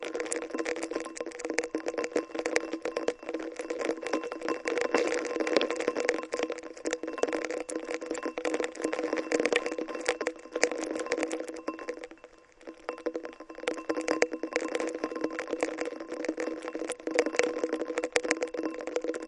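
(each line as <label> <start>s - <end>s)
Rain falls onto the surface of a bowl, creating small, quiet ripples with gentle splashing sounds. 0.6s - 2.7s
Rain falls onto the surface of a bowl, creating small, quiet ripples with gentle splashing sounds. 4.6s - 10.2s
Rain falls onto the surface of a bowl, creating small, quiet ripples and gentle splashing sounds. 10.6s - 12.2s
Rain falls onto the surface of a bowl, creating small, quiet ripples with gentle splashing sounds. 13.6s - 19.2s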